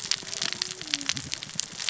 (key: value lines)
label: biophony, cascading saw
recorder: SoundTrap 600 or HydroMoth